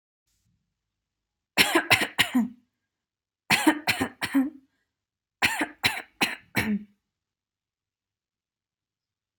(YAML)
expert_labels:
- quality: good
  cough_type: dry
  dyspnea: false
  wheezing: false
  stridor: false
  choking: false
  congestion: false
  nothing: true
  diagnosis: lower respiratory tract infection
  severity: mild
age: 27
gender: female
respiratory_condition: false
fever_muscle_pain: false
status: healthy